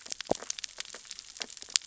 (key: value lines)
label: biophony, sea urchins (Echinidae)
recorder: SoundTrap 600 or HydroMoth